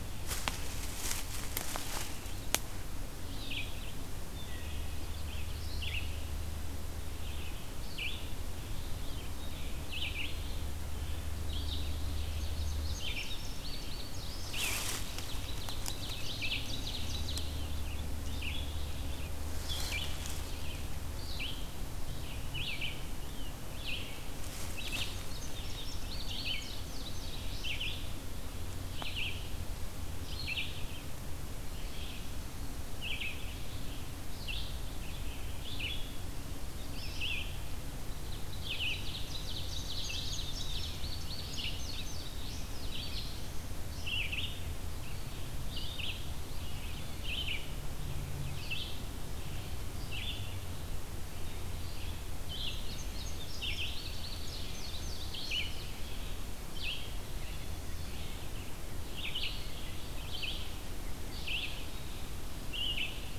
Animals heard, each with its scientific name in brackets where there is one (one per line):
Ovenbird (Seiurus aurocapilla)
Red-eyed Vireo (Vireo olivaceus)
Wood Thrush (Hylocichla mustelina)
Indigo Bunting (Passerina cyanea)